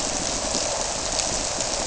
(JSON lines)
{"label": "biophony", "recorder": "SoundTrap 300"}